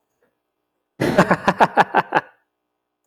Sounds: Laughter